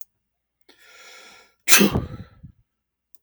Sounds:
Sneeze